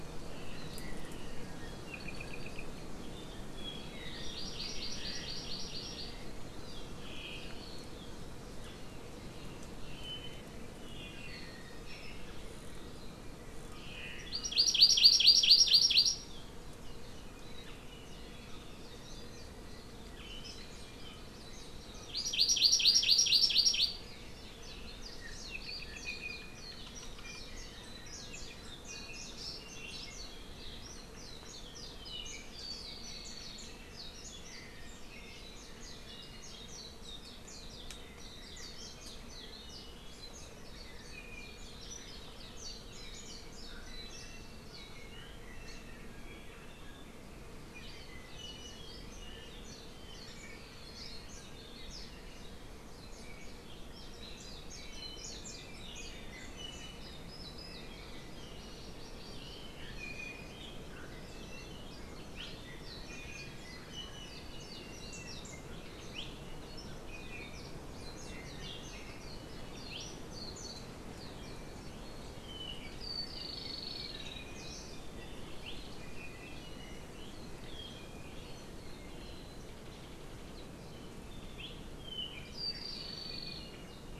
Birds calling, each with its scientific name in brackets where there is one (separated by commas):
Hawaii Amakihi (Chlorodrepanis virens), Hawaii Creeper (Loxops mana), Apapane (Himatione sanguinea)